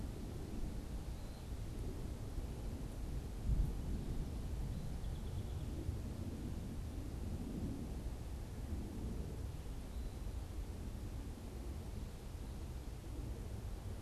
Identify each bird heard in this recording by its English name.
unidentified bird, Song Sparrow